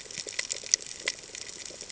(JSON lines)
{"label": "ambient", "recorder": "HydroMoth"}